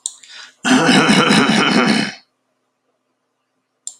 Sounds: Throat clearing